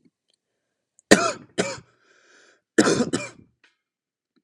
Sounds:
Cough